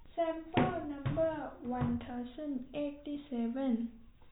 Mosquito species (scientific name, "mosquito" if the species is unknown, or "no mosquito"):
no mosquito